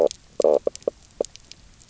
{"label": "biophony, knock croak", "recorder": "SoundTrap 300"}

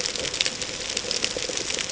{"label": "ambient", "recorder": "HydroMoth"}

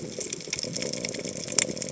{"label": "biophony", "recorder": "HydroMoth"}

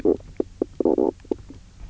{"label": "biophony, knock croak", "recorder": "SoundTrap 300"}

